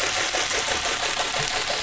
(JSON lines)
{"label": "anthrophony, boat engine", "recorder": "SoundTrap 500"}